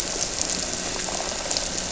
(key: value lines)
label: anthrophony, boat engine
recorder: SoundTrap 300

label: biophony
recorder: SoundTrap 300